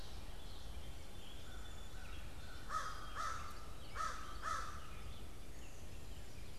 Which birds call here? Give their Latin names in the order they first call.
Corvus brachyrhynchos